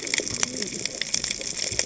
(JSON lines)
{"label": "biophony, cascading saw", "recorder": "HydroMoth"}